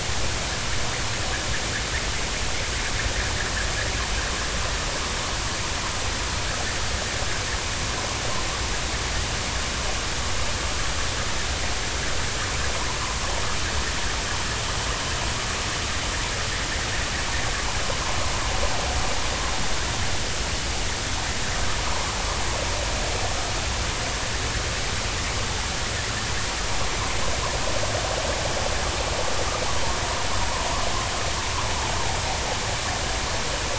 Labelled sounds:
22.8	23.1	vessel noise, 0.86 to 1.3 kHz

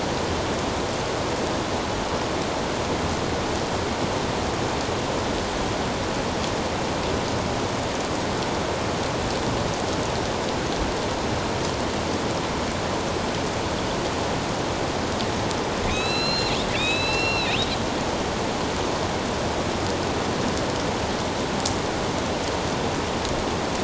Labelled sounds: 15.8	17.6	killer whale, northern resident, A clan, AB subclan, 2.0 to 7.1 kHz

